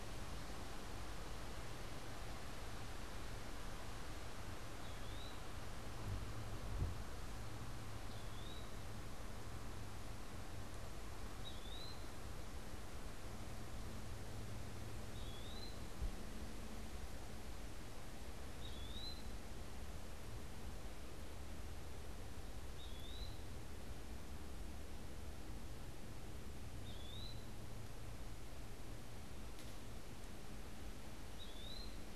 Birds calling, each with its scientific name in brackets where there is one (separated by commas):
Eastern Wood-Pewee (Contopus virens)